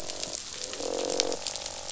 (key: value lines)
label: biophony, croak
recorder: SoundTrap 500